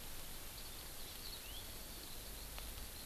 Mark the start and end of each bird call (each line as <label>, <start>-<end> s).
Eurasian Skylark (Alauda arvensis), 0.0-3.1 s